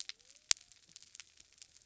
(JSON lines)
{"label": "biophony", "recorder": "SoundTrap 300"}